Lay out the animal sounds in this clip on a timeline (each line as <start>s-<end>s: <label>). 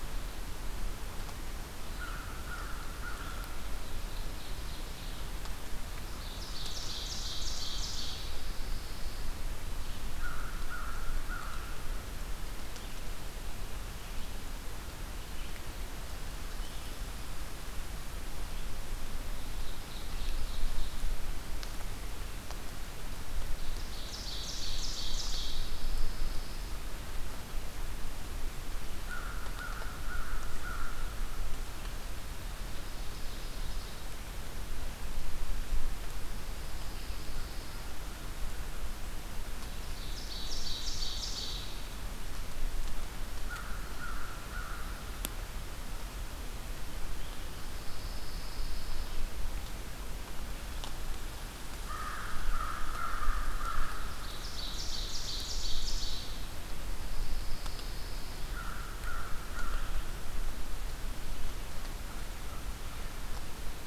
1.9s-3.6s: American Crow (Corvus brachyrhynchos)
3.5s-5.3s: Ovenbird (Seiurus aurocapilla)
5.8s-8.1s: Ovenbird (Seiurus aurocapilla)
8.2s-9.3s: Pine Warbler (Setophaga pinus)
9.9s-11.8s: American Crow (Corvus brachyrhynchos)
12.7s-17.0s: Red-eyed Vireo (Vireo olivaceus)
19.3s-21.2s: Ovenbird (Seiurus aurocapilla)
23.5s-25.7s: Ovenbird (Seiurus aurocapilla)
25.4s-26.9s: Pine Warbler (Setophaga pinus)
28.8s-31.3s: American Crow (Corvus brachyrhynchos)
32.2s-34.2s: Ovenbird (Seiurus aurocapilla)
36.2s-38.0s: Pine Warbler (Setophaga pinus)
39.6s-42.0s: Ovenbird (Seiurus aurocapilla)
43.1s-45.1s: American Crow (Corvus brachyrhynchos)
47.6s-49.1s: Pine Warbler (Setophaga pinus)
51.5s-54.2s: American Crow (Corvus brachyrhynchos)
54.1s-56.7s: Ovenbird (Seiurus aurocapilla)
56.6s-58.5s: Pine Warbler (Setophaga pinus)
58.1s-60.8s: American Crow (Corvus brachyrhynchos)